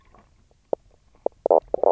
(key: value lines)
label: biophony, knock croak
recorder: SoundTrap 300